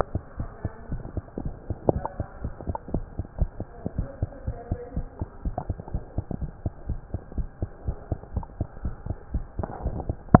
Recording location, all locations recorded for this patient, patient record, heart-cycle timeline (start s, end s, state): tricuspid valve (TV)
aortic valve (AV)+pulmonary valve (PV)+tricuspid valve (TV)+mitral valve (MV)
#Age: Child
#Sex: Female
#Height: 92.0 cm
#Weight: 13.6 kg
#Pregnancy status: False
#Murmur: Absent
#Murmur locations: nan
#Most audible location: nan
#Systolic murmur timing: nan
#Systolic murmur shape: nan
#Systolic murmur grading: nan
#Systolic murmur pitch: nan
#Systolic murmur quality: nan
#Diastolic murmur timing: nan
#Diastolic murmur shape: nan
#Diastolic murmur grading: nan
#Diastolic murmur pitch: nan
#Diastolic murmur quality: nan
#Outcome: Abnormal
#Campaign: 2015 screening campaign
0.00	0.37	unannotated
0.37	0.52	S1
0.52	0.64	systole
0.64	0.74	S2
0.74	0.90	diastole
0.90	1.04	S1
1.04	1.14	systole
1.14	1.24	S2
1.24	1.38	diastole
1.38	1.54	S1
1.54	1.66	systole
1.66	1.76	S2
1.76	1.88	diastole
1.88	2.04	S1
2.04	2.16	systole
2.16	2.26	S2
2.26	2.42	diastole
2.42	2.54	S1
2.54	2.66	systole
2.66	2.76	S2
2.76	2.92	diastole
2.92	3.06	S1
3.06	3.17	systole
3.17	3.26	S2
3.26	3.38	diastole
3.38	3.47	S1
3.47	3.58	systole
3.58	3.66	S2
3.66	3.94	diastole
3.94	4.08	S1
4.08	4.18	systole
4.18	4.30	S2
4.30	4.46	diastole
4.46	4.58	S1
4.58	4.70	systole
4.70	4.80	S2
4.80	4.96	diastole
4.96	5.08	S1
5.08	5.18	systole
5.18	5.28	S2
5.28	5.44	diastole
5.44	5.56	S1
5.56	5.68	systole
5.68	5.78	S2
5.78	5.92	diastole
5.92	6.04	S1
6.04	6.14	systole
6.14	6.24	S2
6.24	6.40	diastole
6.40	6.52	S1
6.52	6.64	systole
6.64	6.74	S2
6.74	6.88	diastole
6.88	7.00	S1
7.00	7.10	systole
7.10	7.22	S2
7.22	7.36	diastole
7.36	7.48	S1
7.48	7.58	systole
7.58	7.70	S2
7.70	7.84	diastole
7.84	7.96	S1
7.96	8.08	systole
8.08	8.18	S2
8.18	8.34	diastole
8.34	8.46	S1
8.46	8.56	systole
8.56	8.66	S2
8.66	8.82	diastole
8.82	8.96	S1
8.96	9.06	systole
9.06	9.18	S2
9.18	9.32	diastole
9.32	9.46	S1
9.46	9.57	systole
9.57	9.70	S2
9.70	9.84	diastole
9.84	9.91	S1
9.91	10.07	systole
10.07	10.15	S2
10.15	10.40	unannotated